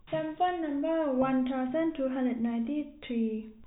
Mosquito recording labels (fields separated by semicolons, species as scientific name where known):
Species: no mosquito; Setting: cup